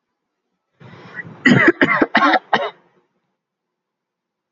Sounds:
Cough